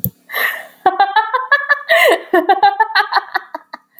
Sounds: Laughter